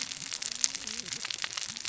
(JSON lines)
{"label": "biophony, cascading saw", "recorder": "SoundTrap 600 or HydroMoth"}